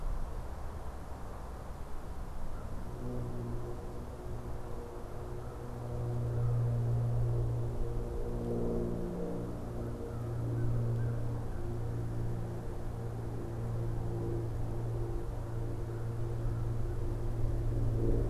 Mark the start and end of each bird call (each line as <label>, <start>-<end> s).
American Crow (Corvus brachyrhynchos), 2.4-2.9 s
American Crow (Corvus brachyrhynchos), 5.2-7.0 s
American Crow (Corvus brachyrhynchos), 9.6-11.9 s
American Crow (Corvus brachyrhynchos), 15.3-17.1 s